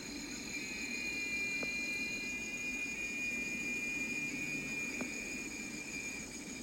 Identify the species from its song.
Quesada gigas